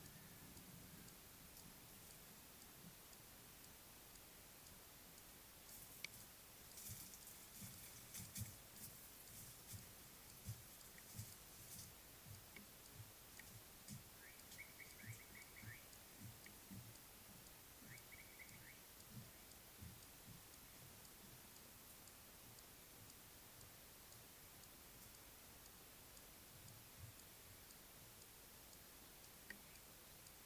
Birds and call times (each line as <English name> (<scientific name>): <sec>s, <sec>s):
Slate-colored Boubou (Laniarius funebris): 15.1s